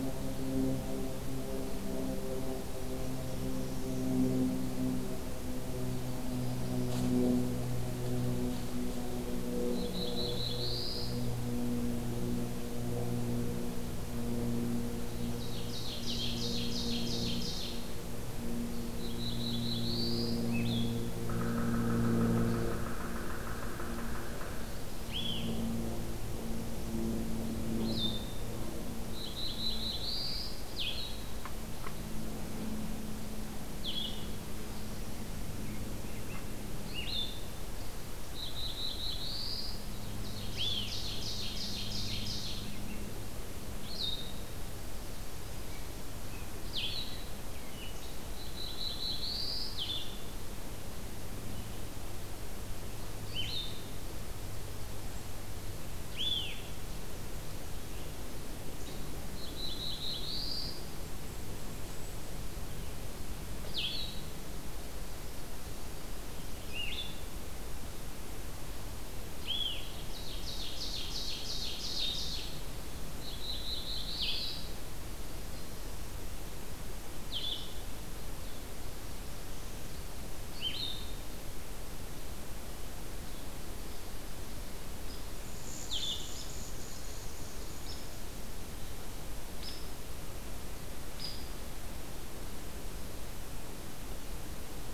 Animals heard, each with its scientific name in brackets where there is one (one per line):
Blue-headed Vireo (Vireo solitarius)
Hairy Woodpecker (Dryobates villosus)
Ovenbird (Seiurus aurocapilla)
unidentified call
Black-throated Blue Warbler (Setophaga caerulescens)